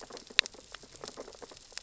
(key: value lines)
label: biophony, sea urchins (Echinidae)
recorder: SoundTrap 600 or HydroMoth